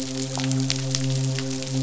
{"label": "biophony, midshipman", "recorder": "SoundTrap 500"}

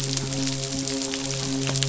{"label": "biophony, midshipman", "recorder": "SoundTrap 500"}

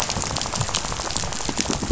{"label": "biophony, rattle", "recorder": "SoundTrap 500"}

